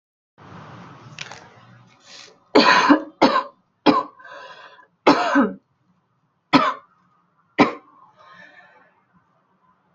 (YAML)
expert_labels:
- quality: ok
  cough_type: dry
  dyspnea: false
  wheezing: false
  stridor: false
  choking: false
  congestion: false
  nothing: true
  diagnosis: lower respiratory tract infection
  severity: mild
age: 26
gender: female
respiratory_condition: false
fever_muscle_pain: false
status: symptomatic